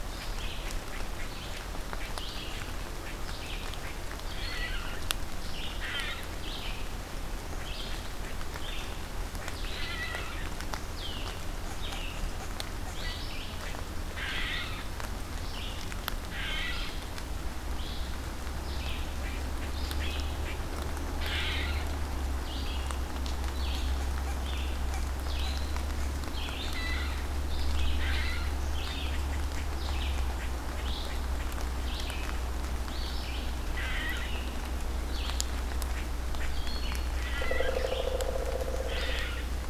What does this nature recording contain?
Red-eyed Vireo, unknown mammal, Pileated Woodpecker